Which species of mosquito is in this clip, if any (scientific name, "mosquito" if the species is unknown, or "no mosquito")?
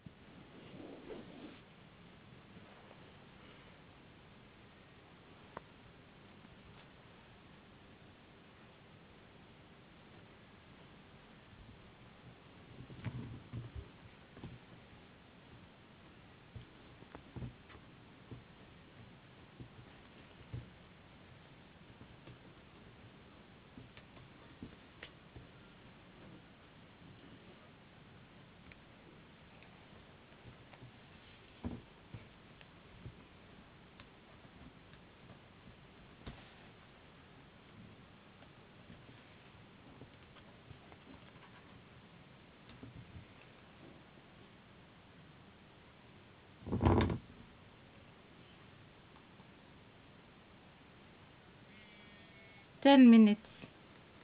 no mosquito